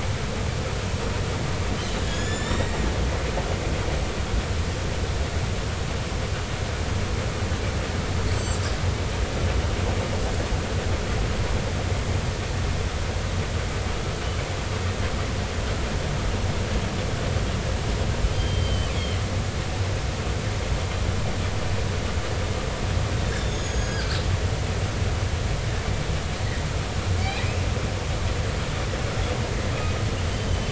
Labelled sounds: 2.1	2.8	killer whale, northern resident, 1.6 to 7.5 kHz
8.3	8.6	killer whale, northern resident, 7.5 to 7.9 kHz
18.3	18.9	killer whale, northern resident, 2.9 to 3.2 kHz
19.9	20.2	killer whale, northern resident, 2.9 to 3.4 kHz
23.3	24.2	killer whale, northern resident, 1.3 to 8.0 kHz
27.2	27.4	killer whale, northern resident, 2.1 to 2.7 kHz
30.5	30.7	killer whale, northern resident, 3.0 to 3.1 kHz

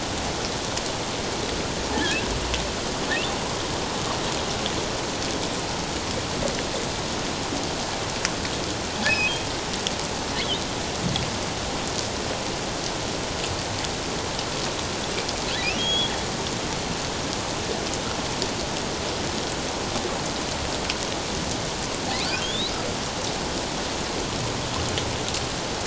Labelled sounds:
1.9	2.2	humpback whale, 1.6 to 1.8 kHz
9.1	9.3	humpback whale, 2.4 to 2.6 kHz
15.8	16.1	humpback whale, 3.2 to 3.5 kHz
22.4	22.7	humpback whale, 3.1 to 4.2 kHz

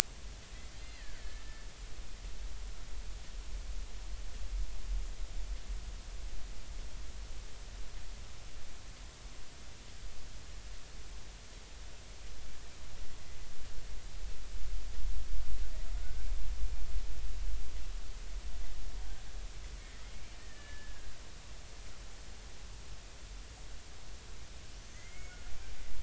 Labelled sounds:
0.8	1.7	killer whale, Bigg's (transient), 1.5 to 2.8 kHz
19.8	21.1	killer whale, Bigg's (transient), 1.5 to 2.4 kHz
24.8	25.4	killer whale, Bigg's (transient), 1.8 to 6.7 kHz

